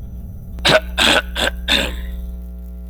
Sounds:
Throat clearing